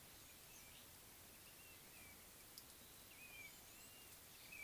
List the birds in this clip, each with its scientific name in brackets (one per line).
Blue-naped Mousebird (Urocolius macrourus)